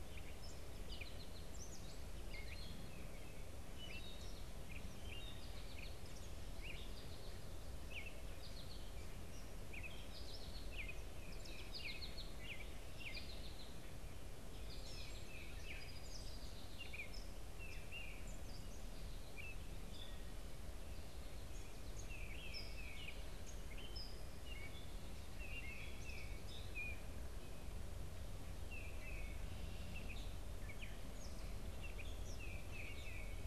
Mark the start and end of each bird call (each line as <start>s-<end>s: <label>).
0.0s-17.4s: American Goldfinch (Spinus tristis)
0.0s-33.5s: Gray Catbird (Dumetella carolinensis)
14.8s-33.5s: Tufted Titmouse (Baeolophus bicolor)
15.5s-16.8s: Song Sparrow (Melospiza melodia)